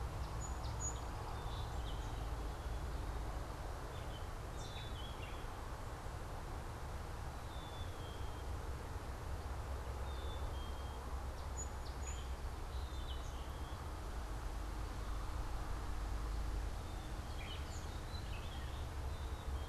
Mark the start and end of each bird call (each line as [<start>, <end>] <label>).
[0.00, 2.29] Song Sparrow (Melospiza melodia)
[0.00, 19.68] Black-capped Chickadee (Poecile atricapillus)
[0.00, 19.68] Gray Catbird (Dumetella carolinensis)
[10.99, 13.89] Song Sparrow (Melospiza melodia)
[17.20, 19.30] House Finch (Haemorhous mexicanus)